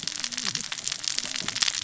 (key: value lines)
label: biophony, cascading saw
recorder: SoundTrap 600 or HydroMoth